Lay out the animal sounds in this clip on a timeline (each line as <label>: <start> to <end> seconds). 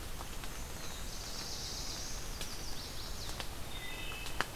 Black-and-white Warbler (Mniotilta varia): 0.0 to 1.9 seconds
Black-throated Blue Warbler (Setophaga caerulescens): 0.7 to 2.3 seconds
Chestnut-sided Warbler (Setophaga pensylvanica): 2.1 to 3.4 seconds
Wood Thrush (Hylocichla mustelina): 3.6 to 4.5 seconds